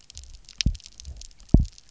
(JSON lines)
{"label": "biophony, double pulse", "recorder": "SoundTrap 300"}